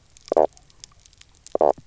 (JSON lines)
{"label": "biophony, knock croak", "recorder": "SoundTrap 300"}